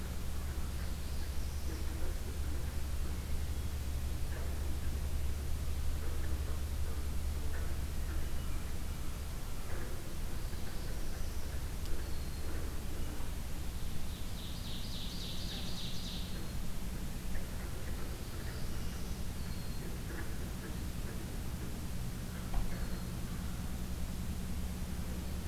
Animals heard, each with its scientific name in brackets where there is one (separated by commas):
Red-winged Blackbird (Agelaius phoeniceus), Northern Parula (Setophaga americana), Ovenbird (Seiurus aurocapilla), Hermit Thrush (Catharus guttatus)